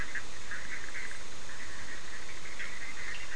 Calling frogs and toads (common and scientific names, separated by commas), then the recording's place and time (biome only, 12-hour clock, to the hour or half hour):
Bischoff's tree frog (Boana bischoffi)
Atlantic Forest, 8:30pm